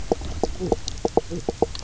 {"label": "biophony, knock croak", "recorder": "SoundTrap 300"}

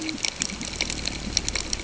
{"label": "ambient", "recorder": "HydroMoth"}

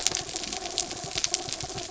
{"label": "anthrophony, mechanical", "recorder": "SoundTrap 300"}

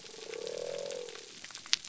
{"label": "biophony", "recorder": "SoundTrap 300"}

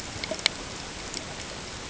{"label": "ambient", "recorder": "HydroMoth"}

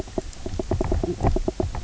{"label": "biophony, knock croak", "recorder": "SoundTrap 300"}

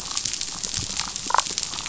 {"label": "biophony, damselfish", "recorder": "SoundTrap 500"}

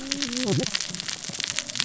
{"label": "biophony, cascading saw", "recorder": "SoundTrap 600 or HydroMoth"}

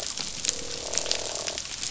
{"label": "biophony, croak", "recorder": "SoundTrap 500"}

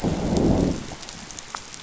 {"label": "biophony, growl", "recorder": "SoundTrap 500"}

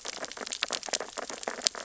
{"label": "biophony, sea urchins (Echinidae)", "recorder": "SoundTrap 600 or HydroMoth"}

